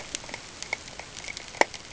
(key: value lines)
label: ambient
recorder: HydroMoth